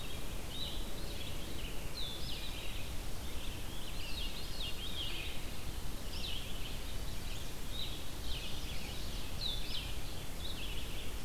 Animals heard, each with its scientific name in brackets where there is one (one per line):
Blue-headed Vireo (Vireo solitarius)
Chestnut-sided Warbler (Setophaga pensylvanica)
Veery (Catharus fuscescens)
Red-eyed Vireo (Vireo olivaceus)